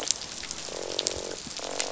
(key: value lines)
label: biophony, croak
recorder: SoundTrap 500